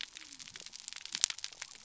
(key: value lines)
label: biophony
recorder: SoundTrap 300